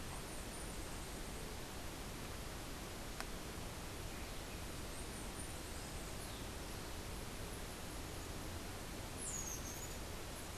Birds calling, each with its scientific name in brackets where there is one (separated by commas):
unidentified bird